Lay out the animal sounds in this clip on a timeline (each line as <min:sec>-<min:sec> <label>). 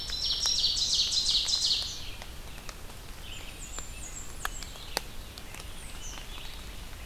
0:00.0-0:01.0 Black-throated Green Warbler (Setophaga virens)
0:00.0-0:01.9 Ovenbird (Seiurus aurocapilla)
0:00.0-0:07.1 Red-eyed Vireo (Vireo olivaceus)
0:03.2-0:04.7 Blackburnian Warbler (Setophaga fusca)
0:05.9-0:06.3 Eastern Kingbird (Tyrannus tyrannus)